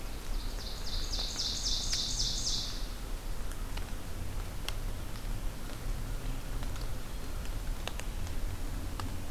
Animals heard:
Ovenbird (Seiurus aurocapilla)

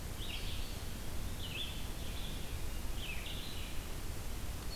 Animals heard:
Eastern Wood-Pewee (Contopus virens), Red-eyed Vireo (Vireo olivaceus)

